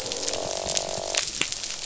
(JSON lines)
{"label": "biophony, croak", "recorder": "SoundTrap 500"}